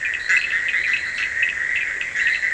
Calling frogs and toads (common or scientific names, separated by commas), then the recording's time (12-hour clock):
Bischoff's tree frog, blacksmith tree frog, fine-lined tree frog, Scinax perereca, Cochran's lime tree frog
1:30am